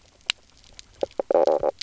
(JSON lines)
{"label": "biophony, knock croak", "recorder": "SoundTrap 300"}